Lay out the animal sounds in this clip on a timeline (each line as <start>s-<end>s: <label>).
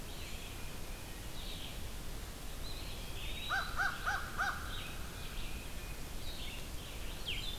0.0s-7.6s: Red-eyed Vireo (Vireo olivaceus)
2.4s-4.3s: Eastern Wood-Pewee (Contopus virens)
3.1s-5.0s: American Crow (Corvus brachyrhynchos)
5.1s-6.2s: Tufted Titmouse (Baeolophus bicolor)